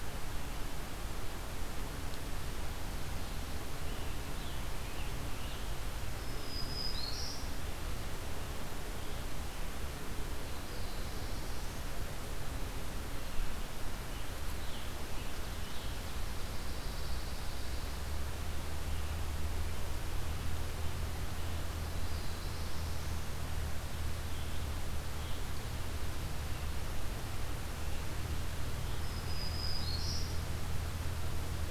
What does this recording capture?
Scarlet Tanager, Black-throated Green Warbler, Black-throated Blue Warbler, Pine Warbler